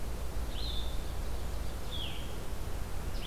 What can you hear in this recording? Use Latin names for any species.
Vireo solitarius